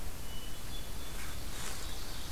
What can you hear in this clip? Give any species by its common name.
Hermit Thrush, Ovenbird